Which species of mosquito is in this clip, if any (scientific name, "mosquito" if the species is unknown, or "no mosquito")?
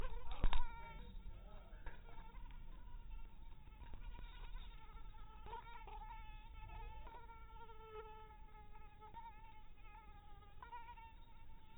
mosquito